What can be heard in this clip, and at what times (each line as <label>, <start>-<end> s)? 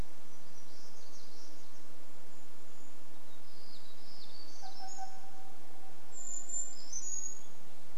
warbler song, 0-6 s
Brown Creeper call, 2-4 s
truck beep, 4-6 s
Brown Creeper song, 6-8 s